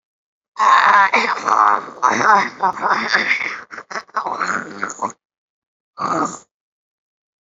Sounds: Throat clearing